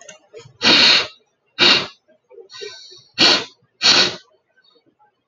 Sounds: Sniff